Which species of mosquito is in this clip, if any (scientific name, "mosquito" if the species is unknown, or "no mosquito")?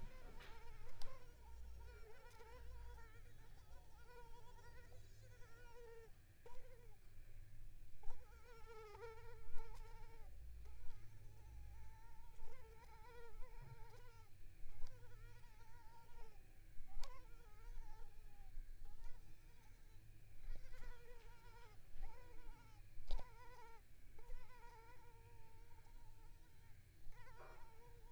Culex pipiens complex